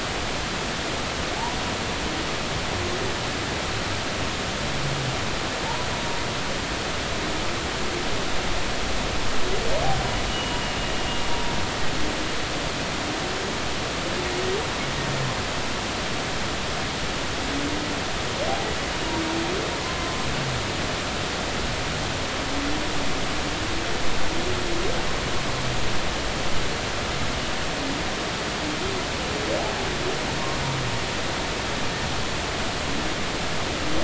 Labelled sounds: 10.3	10.6	humpback whale, 2.8 to 3.0 kHz
19.8	20.2	humpback whale, 0.99 to 1.1 kHz

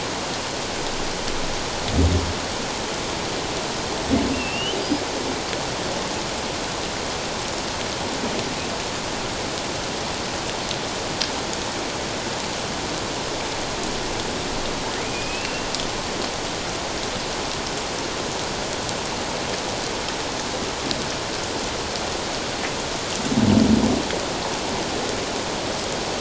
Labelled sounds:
4.3	4.8	humpback whale, 2.6 to 3.2 kHz
15.0	15.7	humpback whale, 2.2 to 2.8 kHz

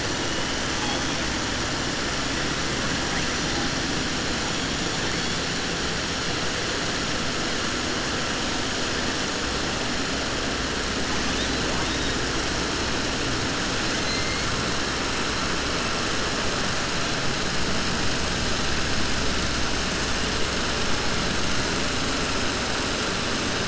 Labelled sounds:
14.0	14.4	killer whale, southern resident, 1.2 to 2.2 kHz

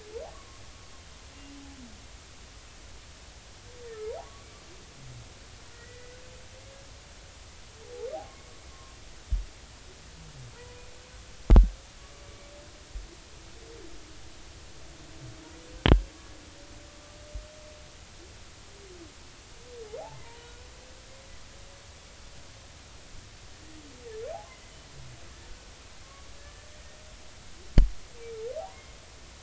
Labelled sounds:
0.3	0.6	humpback whale, 0.99 to 1.2 kHz
5.7	6.2	humpback whale, 1.4 to 2.0 kHz
8.7	9.0	humpback whale, 1.0 to 1.1 kHz
10.5	10.8	humpback whale, 0.93 to 1.0 kHz
20.1	20.7	humpback whale, 0.90 to 1.5 kHz
26.0	27.0	humpback whale, 1.0 to 2.2 kHz

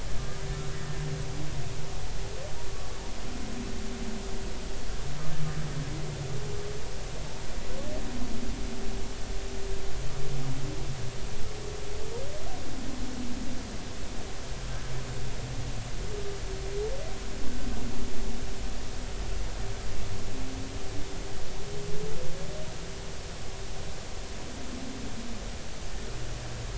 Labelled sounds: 0.2	0.4	humpback whale, 1.15 to 1.25 kHz
0.7	1.0	humpback whale, 1.8 to 1.9 kHz

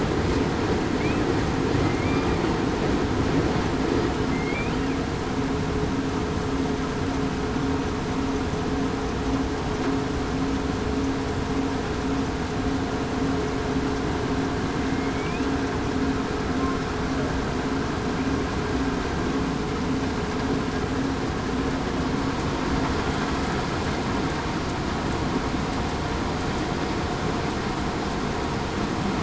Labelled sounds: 4.3	4.7	killer whale, southern resident, 2.0 to 2.6 kHz

